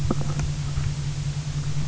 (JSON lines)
{"label": "anthrophony, boat engine", "recorder": "SoundTrap 300"}